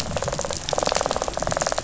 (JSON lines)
{"label": "biophony, rattle response", "recorder": "SoundTrap 500"}